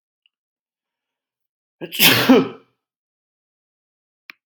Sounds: Sneeze